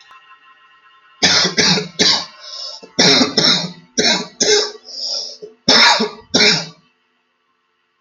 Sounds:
Cough